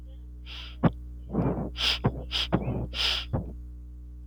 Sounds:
Sniff